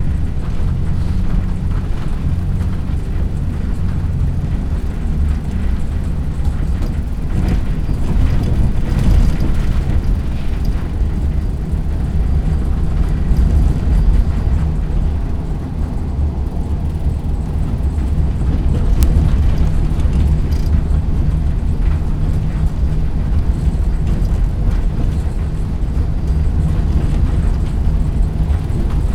Is this machine doing some mechanical motion to do its task?
yes